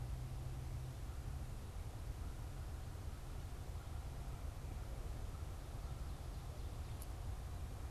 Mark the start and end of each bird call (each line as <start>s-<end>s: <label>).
0.0s-7.9s: American Crow (Corvus brachyrhynchos)